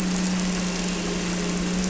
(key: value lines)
label: anthrophony, boat engine
recorder: SoundTrap 300